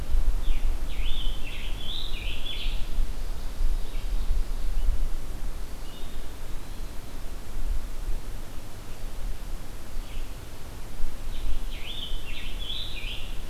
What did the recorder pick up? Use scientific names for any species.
Piranga olivacea, Contopus virens